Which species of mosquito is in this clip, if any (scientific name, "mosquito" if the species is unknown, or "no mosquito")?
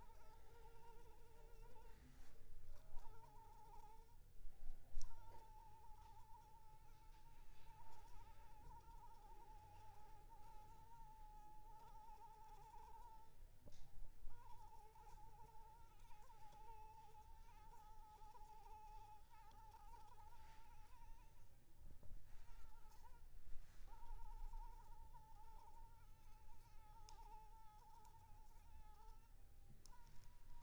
Anopheles arabiensis